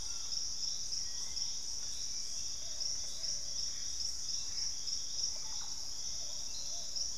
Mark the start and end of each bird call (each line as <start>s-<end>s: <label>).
0.0s-0.7s: Collared Trogon (Trogon collaris)
0.0s-2.2s: Hauxwell's Thrush (Turdus hauxwelli)
1.1s-5.4s: Purple-throated Fruitcrow (Querula purpurata)
2.2s-7.2s: Plumbeous Pigeon (Patagioenas plumbea)
2.8s-5.0s: Gray Antbird (Cercomacra cinerascens)
5.3s-6.4s: Russet-backed Oropendola (Psarocolius angustifrons)